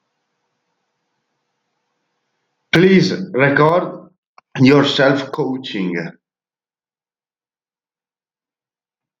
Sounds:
Cough